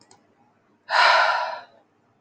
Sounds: Sigh